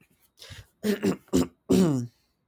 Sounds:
Throat clearing